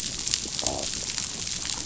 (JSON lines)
{"label": "biophony", "recorder": "SoundTrap 500"}